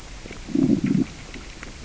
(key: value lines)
label: biophony, growl
recorder: SoundTrap 600 or HydroMoth